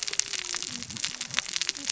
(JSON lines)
{"label": "biophony, cascading saw", "recorder": "SoundTrap 600 or HydroMoth"}